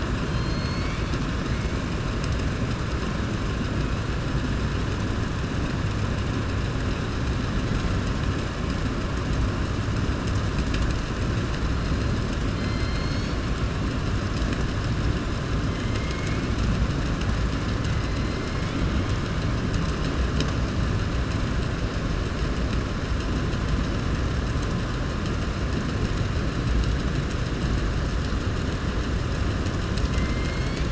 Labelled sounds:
12.5	13.4	killer whale, southern resident, 2.0 to 6.7 kHz
29.8	30.9	killer whale, southern resident, 2.0 to 8.0 kHz

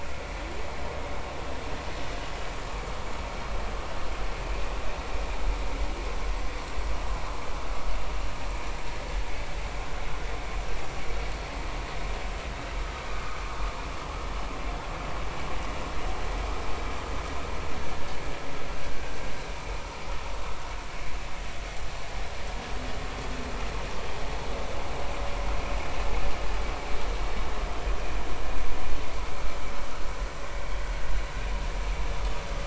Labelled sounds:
13.1	13.4	vessel noise, 1.1 to 1.3 kHz
18.9	19.2	vessel noise, 1.5 to 1.6 kHz

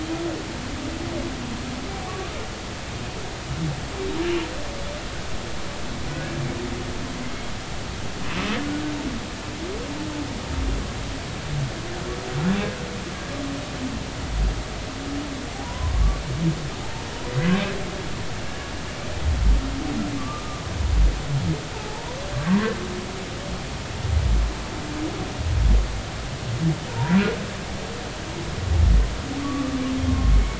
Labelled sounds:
2.1	2.4	humpback whale, 1.1 to 1.3 kHz
15.6	15.9	humpback whale, 0.90 to 1.1 kHz
20.2	20.6	humpback whale, 1.1 to 1.3 kHz
21.7	22.7	humpback whale, 0.80 to 1.2 kHz
26.9	27.2	humpback whale, 0.86 to 1.0 kHz
29.4	30.3	humpback whale, 1.0 to 1.2 kHz

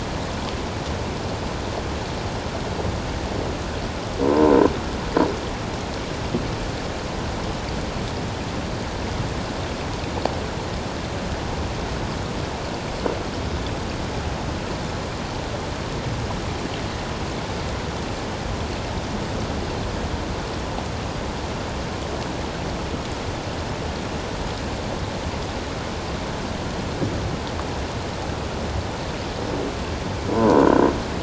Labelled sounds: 4.3	4.5	croaking sound likely from a nearby submerged object, 0.88 to 1.1 kHz
30.3	30.6	croaking sound likely from a nearby submerged object, 0.88 to 1.1 kHz

